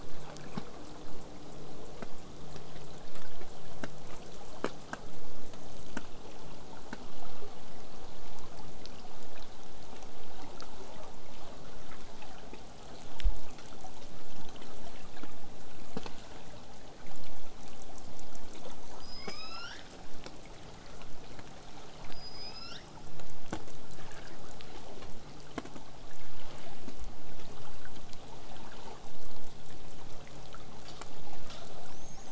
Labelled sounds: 18.7	20.0	killer whale, southern resident, L pod, call S19, 0.88 to 8.0 kHz
22.1	23.1	killer whale, southern resident, L pod, call S19, 1.1 to 8.0 kHz

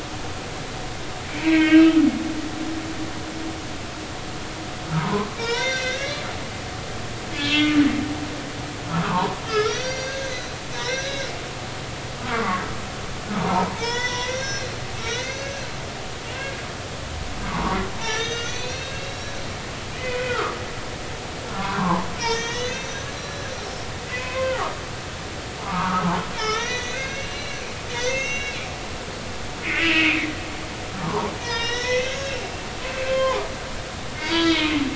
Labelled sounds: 1.3	1.9	humpback whale, 1.5 to 3.2 kHz
2.6	2.9	humpback whale, 2.6 to 2.9 kHz
4.9	6.2	humpback whale, 0.86 to 6.1 kHz
7.3	7.8	humpback whale, 2.5 to 3.4 kHz
8.8	11.3	humpback whale, 0.83 to 6.3 kHz
12.2	12.6	humpback whale, 1.0 to 1.5 kHz
13.4	15.7	humpback whale, 0.80 to 6.5 kHz
17.5	19.4	humpback whale, 0.80 to 6.4 kHz
20.0	20.6	humpback whale, 1.1 to 2.6 kHz
21.5	24.8	humpback whale, 0.80 to 6.8 kHz
25.6	28.7	humpback whale, 0.83 to 6.7 kHz
29.8	30.3	humpback whale, 1.8 to 3.1 kHz
31.0	32.5	humpback whale, 0.80 to 6.1 kHz
33.1	33.4	humpback whale, 0.80 to 3.2 kHz
34.2	34.7	humpback whale, 0.90 to 4.7 kHz

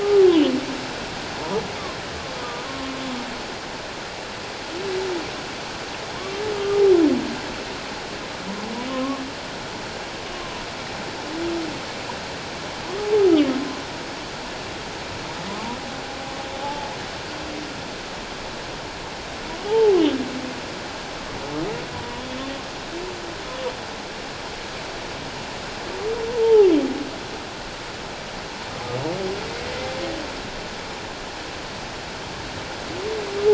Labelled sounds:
0.0	0.3	humpback whale, 1.1 to 1.2 kHz
2.4	2.7	humpback whale, 1.2 to 1.3 kHz
6.1	6.8	humpback whale, 0.91 to 1.2 kHz
8.9	9.2	humpback whale, 1.0 to 1.2 kHz
10.4	10.6	humpback whale, 0.94 to 1.2 kHz
16.6	16.9	humpback whale, 0.81 to 0.94 kHz
19.6	20.0	humpback whale, 0.78 to 0.97 kHz
21.9	22.2	humpback whale, 0.94 to 1.0 kHz
26.3	26.7	humpback whale, 0.78 to 1.0 kHz

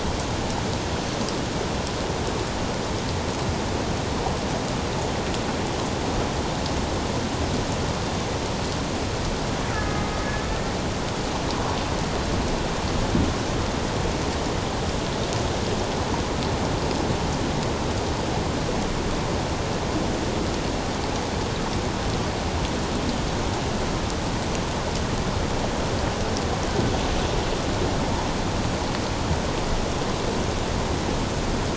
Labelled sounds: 9.7	10.1	killer whale, Bigg's (transient), 1.2 to 1.8 kHz

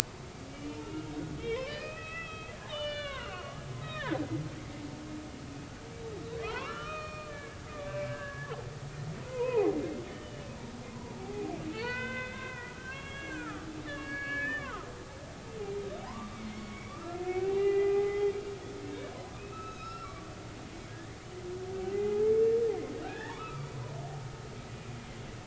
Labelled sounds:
0.5	1.1	humpback whale, 2.2 to 3.1 kHz
1.4	4.2	humpback whale, 0.93 to 5.1 kHz
6.5	8.5	humpback whale, 0.90 to 4.4 kHz
9.2	10.5	humpback whale, 0.80 to 3.1 kHz
11.2	14.9	humpback whale, 0.80 to 4.6 kHz
16.0	18.3	humpback whale, 0.80 to 2.8 kHz
18.9	20.3	humpback whale, 1.1 to 5.6 kHz
21.9	23.8	humpback whale, 0.80 to 2.6 kHz

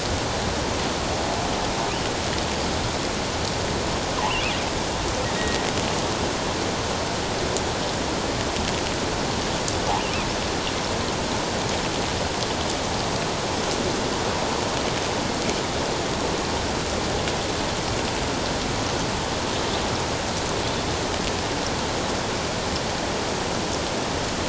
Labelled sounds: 5.4	5.6	killer whale, offshore, 1.8 to 2.0 kHz

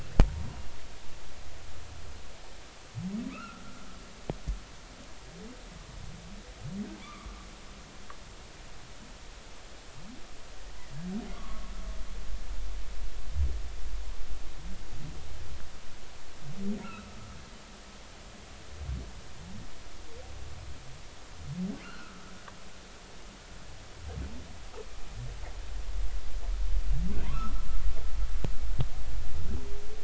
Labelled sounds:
0.2	0.5	humpback whale, 0.90 to 0.99 kHz
3.3	3.6	humpback whale, 1.1 to 2.8 kHz
7.0	7.5	humpback whale, 1.0 to 1.3 kHz
11.3	11.7	humpback whale, 1.0 to 1.3 kHz
16.8	17.2	humpback whale, 1.2 to 1.5 kHz
21.8	22.3	humpback whale, 1.2 to 1.6 kHz
27.3	27.7	humpback whale, 1.2 to 1.4 kHz

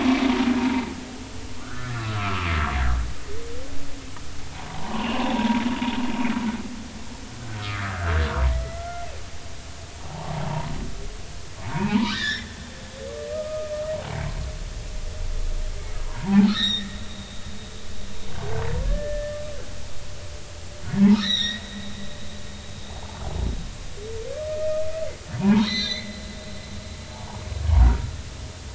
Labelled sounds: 0.6	0.9	humpback whale, 0.86 to 0.99 kHz
1.6	2.5	humpback whale, 0.99 to 1.9 kHz
4.7	5.6	humpback whale, 0.80 to 3.1 kHz
8.8	9.1	humpback whale, 1.3 to 1.4 kHz
10.4	10.7	humpback whale, 0.80 to 1.1 kHz
11.6	12.5	humpback whale, 0.80 to 7.1 kHz
13.3	13.7	humpback whale, 1.2 to 1.3 kHz
16.0	17.0	humpback whale, 0.80 to 5.8 kHz
18.9	19.4	humpback whale, 1.6 to 1.8 kHz
21.0	21.6	humpback whale, 0.80 to 6.0 kHz
25.4	26.2	humpback whale, 0.80 to 6.3 kHz
27.1	28.1	humpback whale, 0.80 to 1.5 kHz

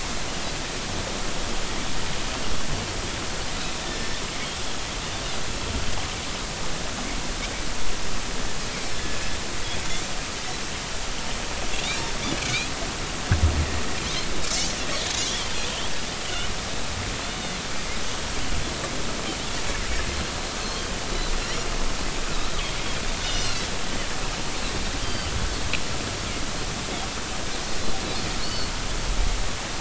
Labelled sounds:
3.8	4.2	Pacific white-sided dolphin, 1.7 to 5.4 kHz
12.4	12.7	Pacific white-sided dolphin, 2.1 to 2.6 kHz
15.3	16.5	Pacific white-sided dolphin, 2.8 to 3.5 kHz
23.2	23.7	Pacific white-sided dolphin, 2.6 to 6.6 kHz
25.0	25.3	Pacific white-sided dolphin, 3.0 to 4.8 kHz
29.4	29.7	Pacific white-sided dolphin, 4.1 to 4.5 kHz

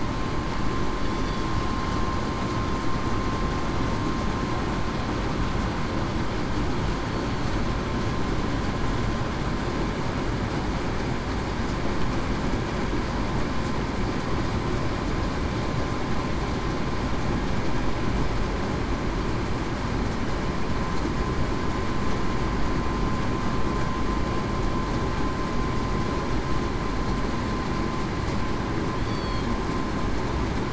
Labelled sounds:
29.0	29.5	killer whale, southern resident, 3.1 to 4.6 kHz

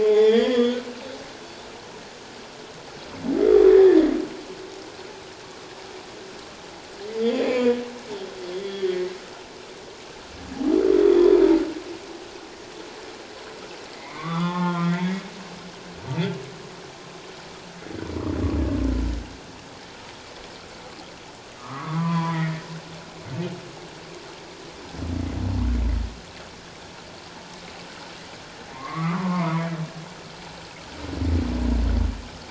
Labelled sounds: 0.1	0.8	humpback whale, 1.5 to 4.9 kHz
3.7	4.0	humpback whale, 1.6 to 2.0 kHz
7.4	8.9	humpback whale, 0.94 to 3.6 kHz
11.0	11.4	humpback whale, 3.2 to 3.7 kHz
13.9	15.1	humpback whale, 0.78 to 3.6 kHz
21.6	22.6	humpback whale, 0.91 to 2.3 kHz
28.7	29.7	humpback whale, 0.84 to 2.6 kHz

